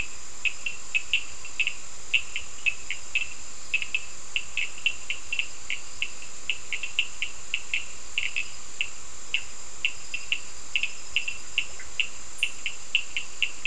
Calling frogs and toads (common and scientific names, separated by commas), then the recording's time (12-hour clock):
Cochran's lime tree frog (Sphaenorhynchus surdus)
8:15pm